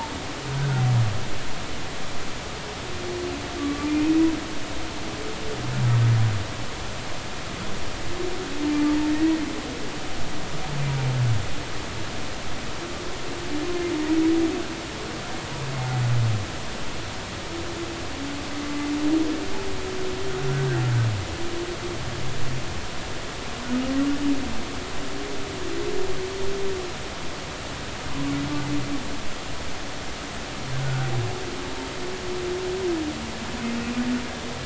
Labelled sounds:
0.6	0.8	humpback whale, 1.3 to 1.6 kHz
3.6	4.1	humpback whale, 1.1 to 2.5 kHz
9.1	9.3	humpback whale, 1.8 to 2.0 kHz
30.8	31.1	humpback whale, 1.4 to 1.6 kHz

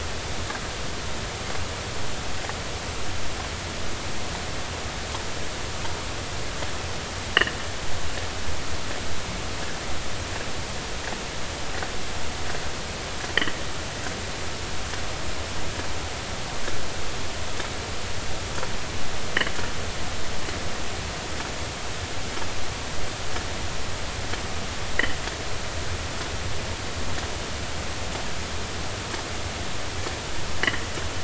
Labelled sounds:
30.6	30.8	sperm whale, 1.7 to 2.2 kHz

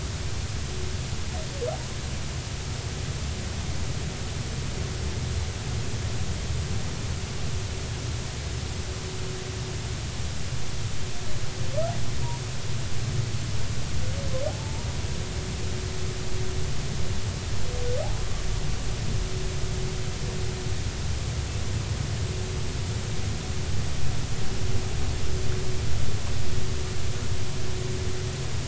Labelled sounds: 14.5	14.9	humpback whale, 0.80 to 0.99 kHz

